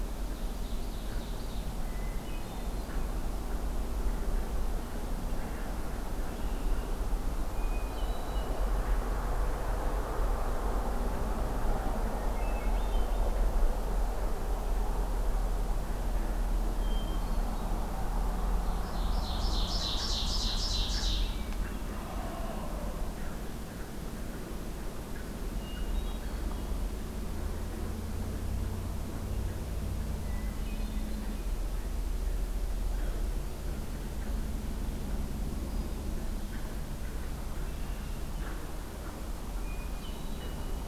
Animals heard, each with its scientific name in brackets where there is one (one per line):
Red-winged Blackbird (Agelaius phoeniceus)
Hermit Thrush (Catharus guttatus)
Ovenbird (Seiurus aurocapilla)
Wild Turkey (Meleagris gallopavo)